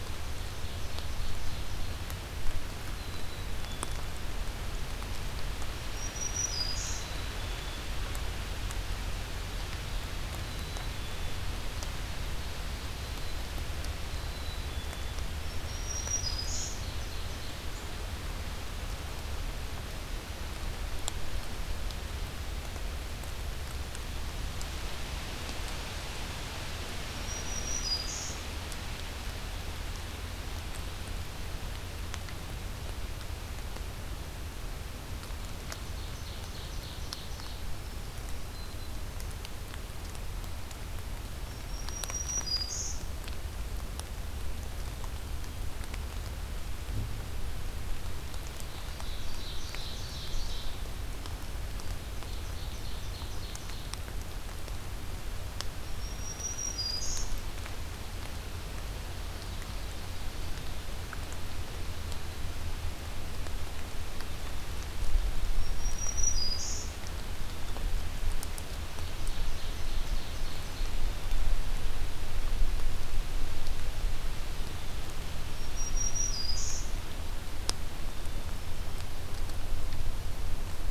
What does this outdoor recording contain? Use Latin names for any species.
Seiurus aurocapilla, Poecile atricapillus, Setophaga virens